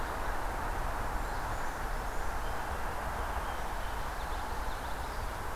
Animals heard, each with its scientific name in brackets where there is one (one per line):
Brown Creeper (Certhia americana)
Scarlet Tanager (Piranga olivacea)
Common Yellowthroat (Geothlypis trichas)